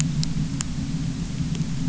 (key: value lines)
label: anthrophony, boat engine
recorder: SoundTrap 300